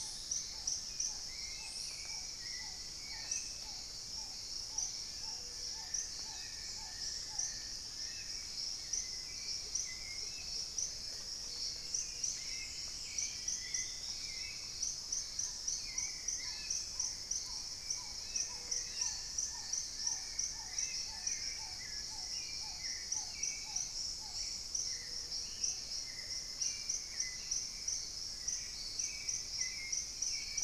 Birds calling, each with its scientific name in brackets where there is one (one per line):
Plumbeous Pigeon (Patagioenas plumbea)
Hauxwell's Thrush (Turdus hauxwelli)
Long-billed Woodcreeper (Nasica longirostris)
unidentified bird
Paradise Tanager (Tangara chilensis)
Black-tailed Trogon (Trogon melanurus)
Gray-fronted Dove (Leptotila rufaxilla)
Gray Antwren (Myrmotherula menetriesii)
Plain-winged Antshrike (Thamnophilus schistaceus)
Spot-winged Antshrike (Pygiptila stellaris)
Dusky-throated Antshrike (Thamnomanes ardesiacus)